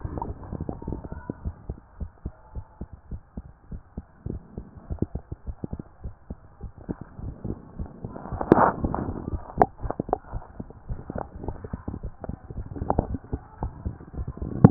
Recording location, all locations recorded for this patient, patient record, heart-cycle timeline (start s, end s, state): tricuspid valve (TV)
pulmonary valve (PV)+tricuspid valve (TV)+tricuspid valve (TV)
#Age: Child
#Sex: Male
#Height: 123.0 cm
#Weight: 30.9 kg
#Pregnancy status: False
#Murmur: Absent
#Murmur locations: nan
#Most audible location: nan
#Systolic murmur timing: nan
#Systolic murmur shape: nan
#Systolic murmur grading: nan
#Systolic murmur pitch: nan
#Systolic murmur quality: nan
#Diastolic murmur timing: nan
#Diastolic murmur shape: nan
#Diastolic murmur grading: nan
#Diastolic murmur pitch: nan
#Diastolic murmur quality: nan
#Outcome: Normal
#Campaign: 2014 screening campaign
0.00	1.44	unannotated
1.44	1.54	S1
1.54	1.68	systole
1.68	1.78	S2
1.78	2.00	diastole
2.00	2.10	S1
2.10	2.24	systole
2.24	2.34	S2
2.34	2.54	diastole
2.54	2.64	S1
2.64	2.80	systole
2.80	2.88	S2
2.88	3.10	diastole
3.10	3.20	S1
3.20	3.36	systole
3.36	3.46	S2
3.46	3.72	diastole
3.72	3.82	S1
3.82	3.96	systole
3.96	4.04	S2
4.04	4.30	diastole
4.30	4.40	S1
4.40	4.56	systole
4.56	4.66	S2
4.66	4.90	diastole
4.90	14.70	unannotated